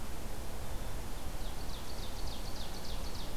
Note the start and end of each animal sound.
[1.24, 3.36] Ovenbird (Seiurus aurocapilla)

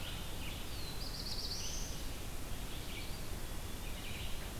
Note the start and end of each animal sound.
[0.00, 4.59] Red-eyed Vireo (Vireo olivaceus)
[0.29, 2.47] Black-throated Blue Warbler (Setophaga caerulescens)
[2.75, 4.42] Eastern Wood-Pewee (Contopus virens)

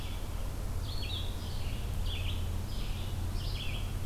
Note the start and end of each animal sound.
[0.00, 4.06] Red-eyed Vireo (Vireo olivaceus)

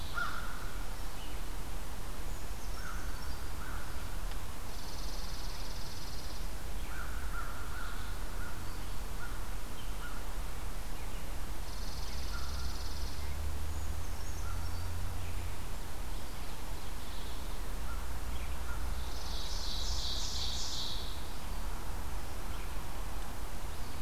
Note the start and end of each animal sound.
[0.00, 4.92] American Crow (Corvus brachyrhynchos)
[2.03, 3.50] Brown Creeper (Certhia americana)
[4.44, 6.48] Chipping Sparrow (Spizella passerina)
[6.64, 10.54] American Crow (Corvus brachyrhynchos)
[11.28, 13.31] Chipping Sparrow (Spizella passerina)
[12.20, 18.02] American Crow (Corvus brachyrhynchos)
[13.62, 15.33] Brown Creeper (Certhia americana)
[18.87, 21.31] Ovenbird (Seiurus aurocapilla)

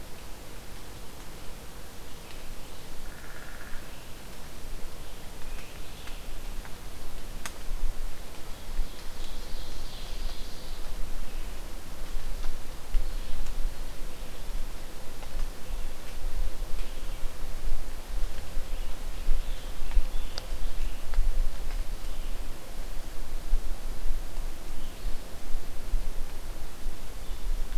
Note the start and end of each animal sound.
[0.00, 17.39] Red-eyed Vireo (Vireo olivaceus)
[2.94, 3.84] Downy Woodpecker (Dryobates pubescens)
[8.51, 10.88] Ovenbird (Seiurus aurocapilla)
[18.25, 20.58] Scarlet Tanager (Piranga olivacea)
[20.29, 27.78] Red-eyed Vireo (Vireo olivaceus)

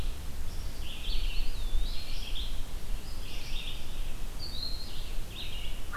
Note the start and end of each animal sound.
[0.74, 5.96] Red-eyed Vireo (Vireo olivaceus)
[1.15, 2.26] Eastern Wood-Pewee (Contopus virens)

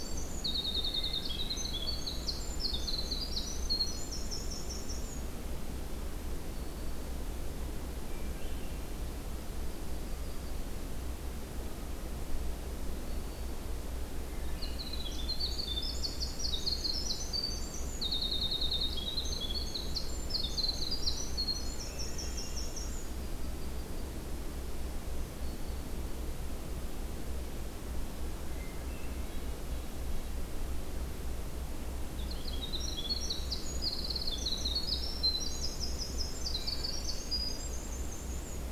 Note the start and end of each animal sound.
[0.00, 5.29] Winter Wren (Troglodytes hiemalis)
[0.92, 1.81] Hermit Thrush (Catharus guttatus)
[6.39, 7.30] Black-throated Green Warbler (Setophaga virens)
[7.99, 8.95] Hermit Thrush (Catharus guttatus)
[9.61, 10.69] Yellow-rumped Warbler (Setophaga coronata)
[12.81, 13.75] Black-throated Green Warbler (Setophaga virens)
[14.21, 15.29] Hermit Thrush (Catharus guttatus)
[14.51, 23.09] Winter Wren (Troglodytes hiemalis)
[21.70, 22.84] Hermit Thrush (Catharus guttatus)
[22.80, 24.11] Yellow-rumped Warbler (Setophaga coronata)
[24.61, 26.21] Black-throated Green Warbler (Setophaga virens)
[28.44, 29.33] Hermit Thrush (Catharus guttatus)
[29.20, 30.38] Red-breasted Nuthatch (Sitta canadensis)
[32.16, 38.69] Winter Wren (Troglodytes hiemalis)

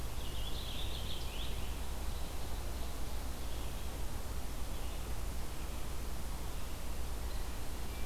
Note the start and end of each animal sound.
[0.01, 2.19] Purple Finch (Haemorhous purpureus)
[3.45, 8.06] Red-eyed Vireo (Vireo olivaceus)

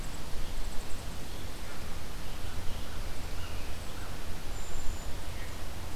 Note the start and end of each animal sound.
[2.31, 4.21] American Crow (Corvus brachyrhynchos)
[4.41, 5.23] Brown Creeper (Certhia americana)

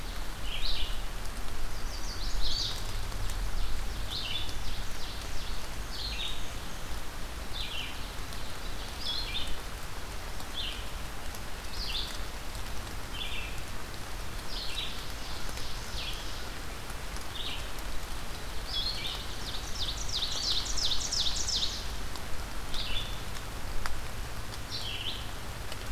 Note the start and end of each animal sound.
[0.38, 25.91] Red-eyed Vireo (Vireo olivaceus)
[1.54, 3.01] Chestnut-sided Warbler (Setophaga pensylvanica)
[2.96, 5.59] Ovenbird (Seiurus aurocapilla)
[5.19, 6.93] Black-and-white Warbler (Mniotilta varia)
[14.28, 16.69] Ovenbird (Seiurus aurocapilla)
[18.74, 22.20] Ovenbird (Seiurus aurocapilla)

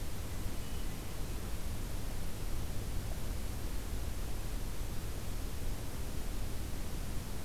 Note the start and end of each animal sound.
[0.00, 1.07] Hermit Thrush (Catharus guttatus)

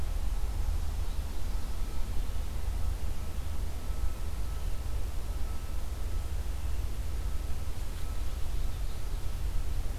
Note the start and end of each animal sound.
[7.66, 9.31] Yellow-rumped Warbler (Setophaga coronata)

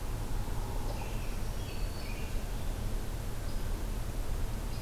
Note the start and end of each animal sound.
[0.00, 1.17] Hairy Woodpecker (Dryobates villosus)
[0.84, 2.38] American Robin (Turdus migratorius)
[0.94, 2.30] Black-throated Green Warbler (Setophaga virens)

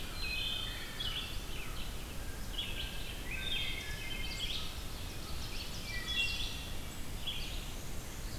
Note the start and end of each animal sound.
[0.12, 1.16] Wood Thrush (Hylocichla mustelina)
[0.83, 8.38] Red-eyed Vireo (Vireo olivaceus)
[2.07, 6.35] American Crow (Corvus brachyrhynchos)
[3.10, 4.65] Wood Thrush (Hylocichla mustelina)
[4.39, 6.43] Ovenbird (Seiurus aurocapilla)
[5.82, 6.77] Wood Thrush (Hylocichla mustelina)
[7.29, 8.38] Black-and-white Warbler (Mniotilta varia)

